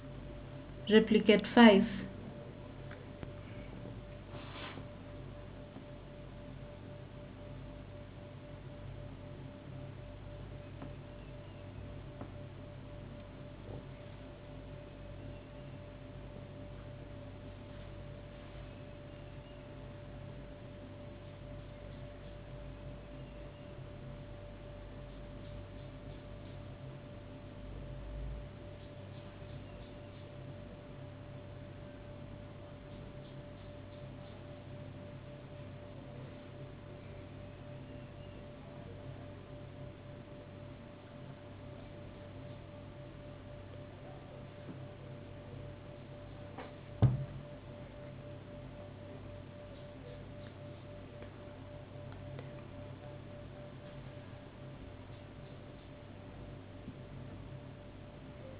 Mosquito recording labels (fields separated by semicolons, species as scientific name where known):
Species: no mosquito; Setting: insect culture